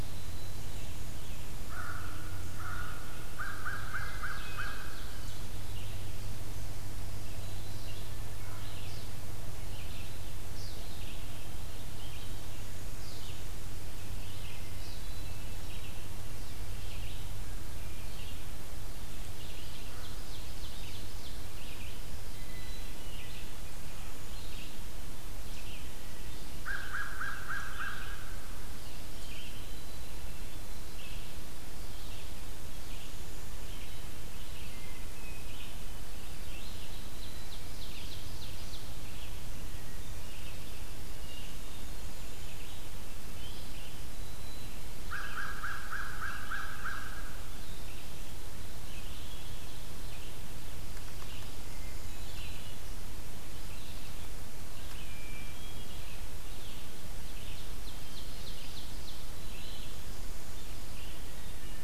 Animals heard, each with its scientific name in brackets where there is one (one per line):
Ovenbird (Seiurus aurocapilla)
Black-throated Green Warbler (Setophaga virens)
American Crow (Corvus brachyrhynchos)
Red-eyed Vireo (Vireo olivaceus)
Hermit Thrush (Catharus guttatus)